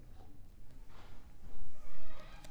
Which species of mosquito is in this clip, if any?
Culex pipiens complex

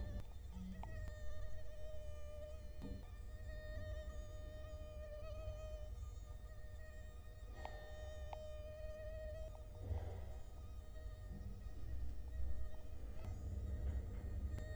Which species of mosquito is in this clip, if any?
Culex quinquefasciatus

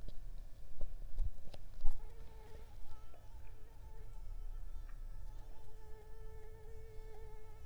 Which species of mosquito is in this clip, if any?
Mansonia uniformis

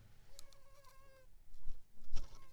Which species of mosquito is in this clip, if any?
Anopheles squamosus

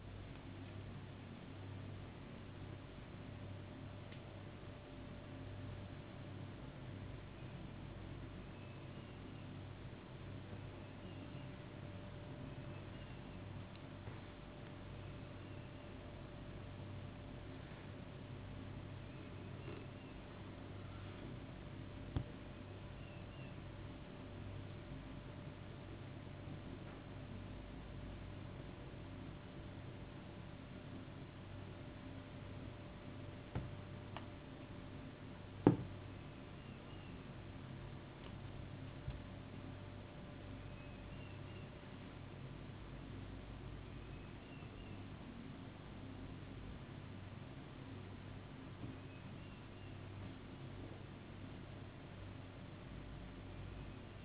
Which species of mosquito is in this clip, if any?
no mosquito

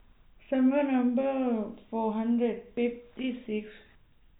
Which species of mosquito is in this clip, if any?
no mosquito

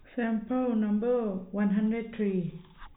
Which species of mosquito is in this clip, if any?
no mosquito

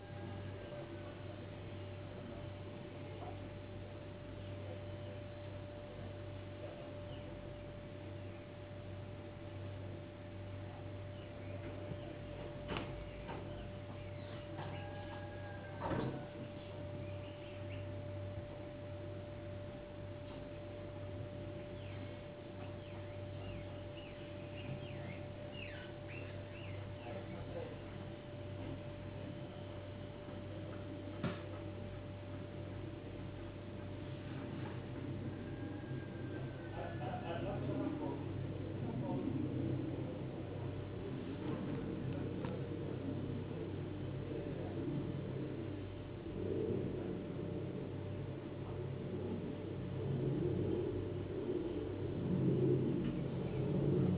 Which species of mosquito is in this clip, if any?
no mosquito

